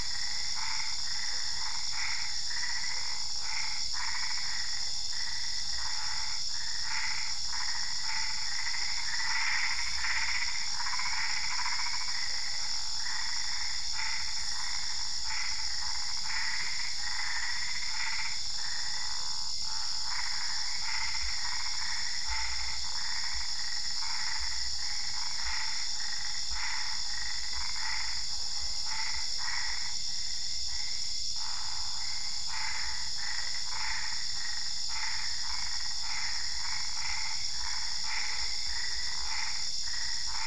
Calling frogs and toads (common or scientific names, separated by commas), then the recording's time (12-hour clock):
Boana albopunctata
10:45pm